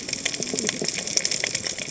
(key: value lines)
label: biophony, cascading saw
recorder: HydroMoth